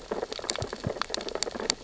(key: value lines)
label: biophony, sea urchins (Echinidae)
recorder: SoundTrap 600 or HydroMoth